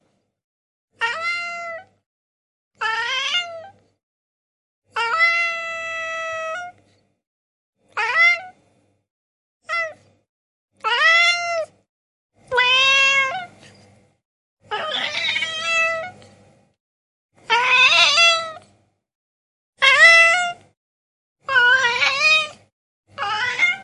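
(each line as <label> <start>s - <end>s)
A cat meows. 0.9s - 2.0s
A cat meows. 2.6s - 4.1s
A cat meows. 4.8s - 6.9s
A cat meows. 7.8s - 13.9s
A cat meows. 14.6s - 16.6s
A cat meows. 17.4s - 18.9s
A cat meows. 19.6s - 23.8s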